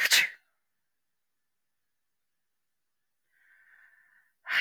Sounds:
Sneeze